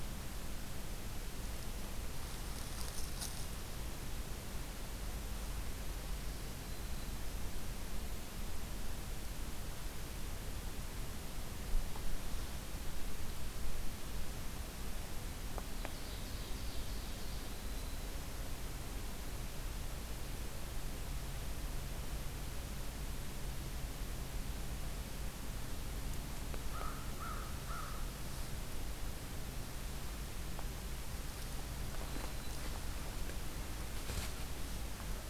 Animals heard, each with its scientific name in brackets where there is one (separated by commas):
American Crow (Corvus brachyrhynchos), Ovenbird (Seiurus aurocapilla), Black-throated Green Warbler (Setophaga virens)